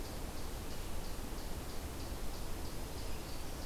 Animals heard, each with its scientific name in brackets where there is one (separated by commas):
Eastern Chipmunk (Tamias striatus), Black-throated Green Warbler (Setophaga virens)